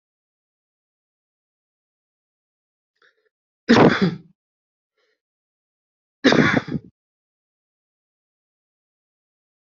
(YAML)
expert_labels:
- quality: poor
  cough_type: unknown
  dyspnea: false
  wheezing: false
  stridor: false
  choking: false
  congestion: false
  nothing: true
  diagnosis: healthy cough
  severity: unknown
age: 42
gender: male
respiratory_condition: false
fever_muscle_pain: false
status: COVID-19